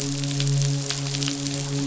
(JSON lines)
{"label": "biophony, midshipman", "recorder": "SoundTrap 500"}